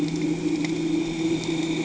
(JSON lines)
{"label": "anthrophony, boat engine", "recorder": "HydroMoth"}